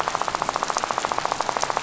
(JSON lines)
{"label": "biophony, rattle", "recorder": "SoundTrap 500"}